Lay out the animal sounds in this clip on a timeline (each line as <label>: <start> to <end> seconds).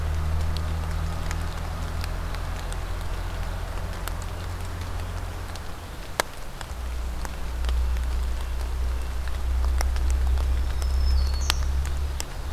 Black-throated Green Warbler (Setophaga virens): 10.1 to 11.8 seconds